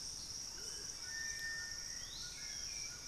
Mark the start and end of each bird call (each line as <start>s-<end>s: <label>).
0.0s-3.1s: Amazonian Motmot (Momotus momota)
0.0s-3.1s: Hauxwell's Thrush (Turdus hauxwelli)
0.0s-3.1s: White-throated Toucan (Ramphastos tucanus)